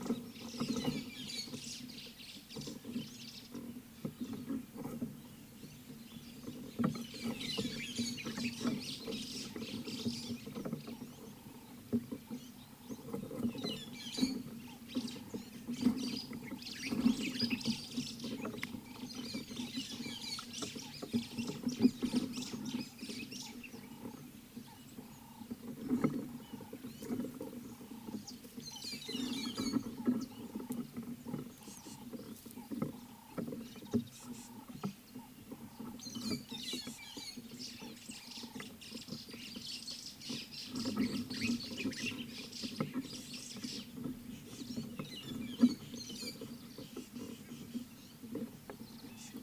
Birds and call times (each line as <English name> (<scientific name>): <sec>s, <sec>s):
White-browed Sparrow-Weaver (Plocepasser mahali): 2.6s, 39.0s
White-headed Buffalo-Weaver (Dinemellia dinemelli): 7.6s, 14.0s, 29.3s, 36.7s, 45.6s